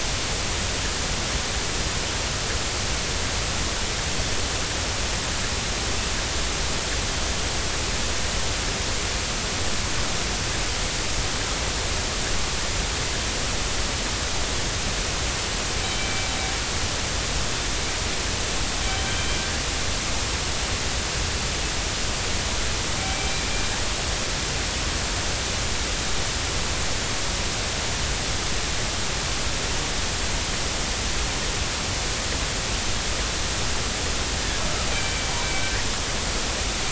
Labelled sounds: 15.8	16.3	killer whale, northern resident, G clan, 2.3 to 3.1 kHz
19.0	19.3	killer whale, northern resident, G clan, 3.0 to 3.2 kHz
23.0	23.3	killer whale, northern resident, G clan, 2.3 to 2.4 kHz
34.9	35.7	killer whale, northern resident, G clan, 2.2 to 2.4 kHz

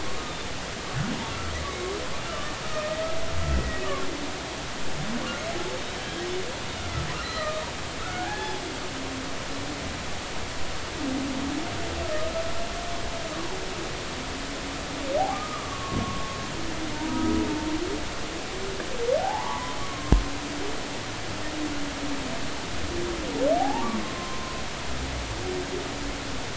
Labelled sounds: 0.0	0.4	humpback whale, 1.0 to 1.3 kHz
2.3	2.5	humpback whale, 1.1 to 1.4 kHz
3.5	3.8	humpback whale, 1.9 to 2.0 kHz
6.6	6.9	humpback whale, 3.6 to 3.7 kHz
7.2	8.6	humpback whale, 0.80 to 4.2 kHz
12.0	12.3	humpback whale, 1.2 to 1.3 kHz
15.3	16.4	humpback whale, 1.0 to 1.3 kHz
16.9	17.4	humpback whale, 0.86 to 1.3 kHz
19.2	20.1	humpback whale, 0.80 to 1.2 kHz
23.6	23.9	humpback whale, 0.80 to 0.99 kHz
24.1	24.6	humpback whale, 0.99 to 1.1 kHz

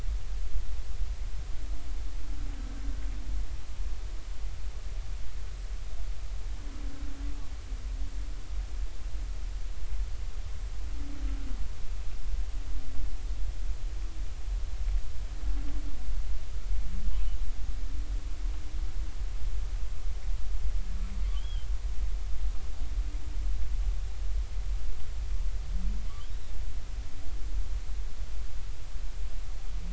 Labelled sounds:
22.4	22.7	humpback whale, 2.9 to 3.5 kHz

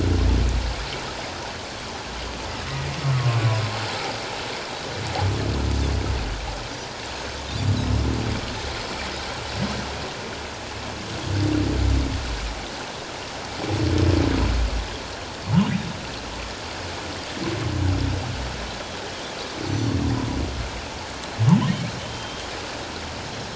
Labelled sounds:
2.7	2.9	Pacific white-sided dolphin, 1.9 to 2.1 kHz
3.1	3.4	humpback whale, 1.0 to 1.3 kHz
7.8	8.1	Pacific white-sided dolphin, 5.0 to 5.3 kHz
19.7	20.0	Pacific white-sided dolphin, 4.3 to 6.0 kHz
22.0	22.4	humpback whale, 3.0 to 3.2 kHz

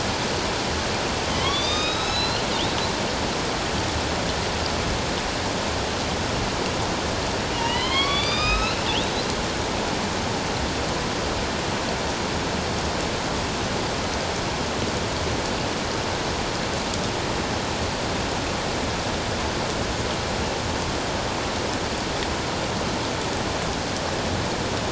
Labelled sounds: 1.3	2.4	killer whale, northern resident, A clan, AB subclan, 1.0 to 6.2 kHz
7.5	8.8	killer whale, northern resident, A clan, AB subclan, 0.94 to 5.4 kHz

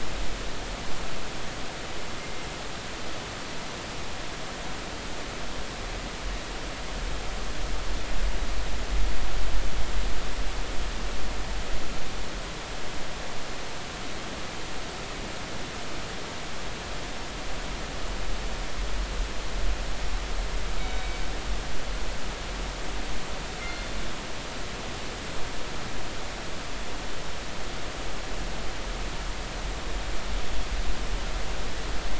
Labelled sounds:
20.8	21.1	killer whale, northern resident, G clan, 3.7 to 3.8 kHz
23.6	23.9	killer whale, northern resident, G clan, 2.0 to 2.2 kHz

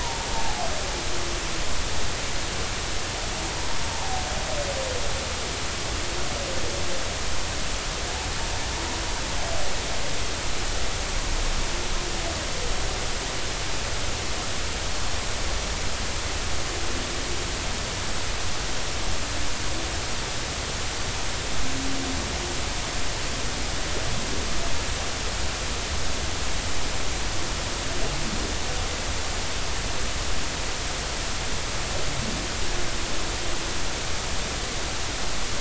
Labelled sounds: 0.0	0.7	humpback whale, 0.80 to 1.0 kHz
3.8	4.2	humpback whale, 0.80 to 1.0 kHz

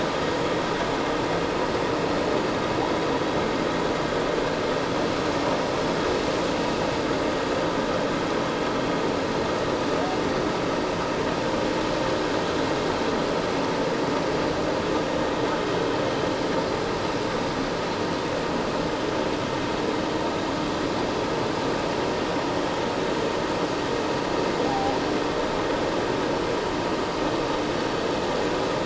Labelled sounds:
24.6	25.0	humpback whale, 0.78 to 0.88 kHz

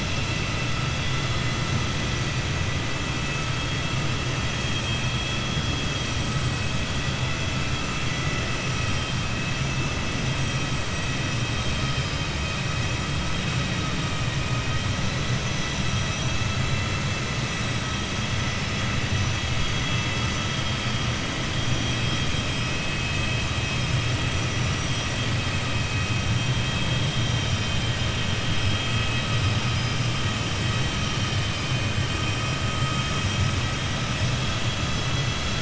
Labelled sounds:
4.6	5.1	vessel noise, 2.4 to 3.8 kHz

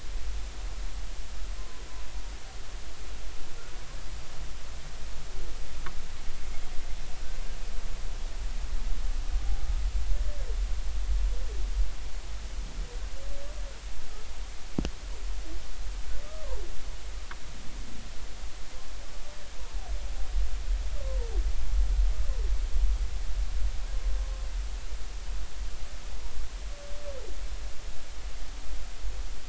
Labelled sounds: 1.6	1.8	humpback whale, 0.99 to 1.1 kHz

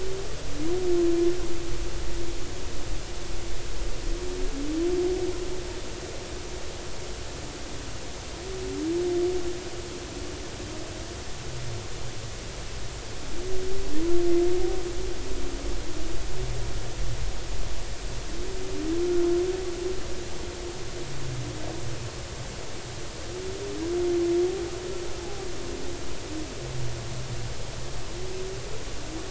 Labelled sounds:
19.0	19.3	humpback whale, 1.4 to 1.5 kHz
25.2	25.5	humpback whale, 0.80 to 0.90 kHz

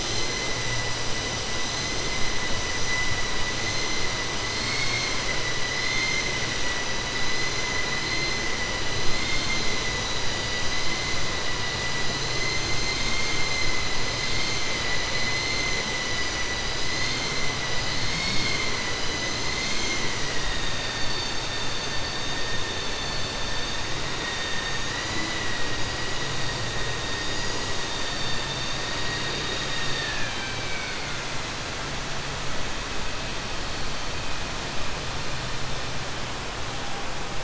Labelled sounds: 5.8	6.3	vessel noise, 2.0 to 6.3 kHz
9.1	9.6	vessel noise, 2.1 to 4.7 kHz
24.9	25.6	vessel noise, 1.9 to 5.0 kHz
28.8	31.2	vessel noise, 1.5 to 4.9 kHz

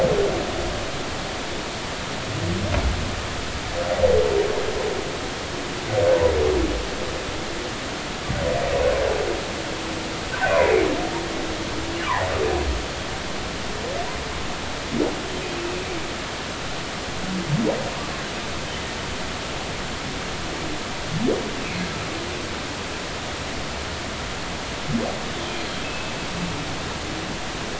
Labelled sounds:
10.5	10.7	humpback whale, 2.2 to 2.5 kHz
15.6	15.8	humpback whale, 2.5 to 2.7 kHz
25.8	26.1	humpback whale, 2.5 to 2.7 kHz

